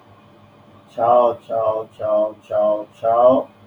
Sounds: Sigh